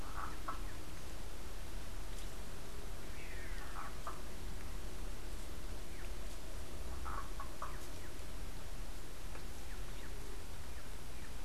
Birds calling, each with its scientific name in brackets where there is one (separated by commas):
unidentified bird